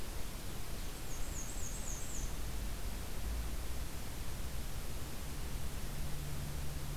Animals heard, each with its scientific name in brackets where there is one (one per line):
Black-and-white Warbler (Mniotilta varia)